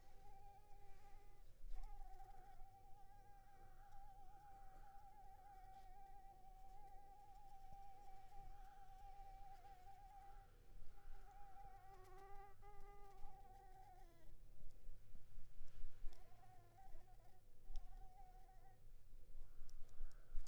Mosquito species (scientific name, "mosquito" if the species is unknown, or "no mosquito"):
Anopheles arabiensis